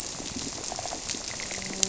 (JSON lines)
{"label": "biophony, grouper", "recorder": "SoundTrap 300"}